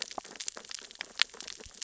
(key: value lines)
label: biophony, sea urchins (Echinidae)
recorder: SoundTrap 600 or HydroMoth